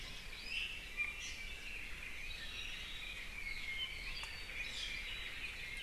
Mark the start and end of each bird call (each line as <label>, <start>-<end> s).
Iiwi (Drepanis coccinea), 0.3-0.8 s
Iiwi (Drepanis coccinea), 1.1-1.5 s
Apapane (Himatione sanguinea), 2.0-4.6 s
Iiwi (Drepanis coccinea), 4.5-5.0 s